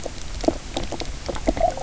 {"label": "biophony, knock croak", "recorder": "SoundTrap 300"}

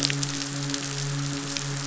{"label": "biophony, midshipman", "recorder": "SoundTrap 500"}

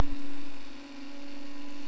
{"label": "anthrophony, boat engine", "recorder": "SoundTrap 300"}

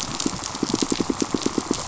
{"label": "biophony, pulse", "recorder": "SoundTrap 500"}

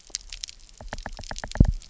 {"label": "biophony, knock", "recorder": "SoundTrap 300"}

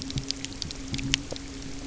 {"label": "anthrophony, boat engine", "recorder": "SoundTrap 300"}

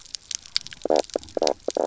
{"label": "biophony, knock croak", "recorder": "SoundTrap 300"}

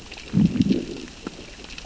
{"label": "biophony, growl", "recorder": "SoundTrap 600 or HydroMoth"}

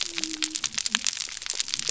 {"label": "biophony", "recorder": "SoundTrap 300"}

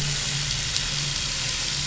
{"label": "anthrophony, boat engine", "recorder": "SoundTrap 500"}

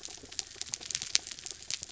{"label": "anthrophony, mechanical", "recorder": "SoundTrap 300"}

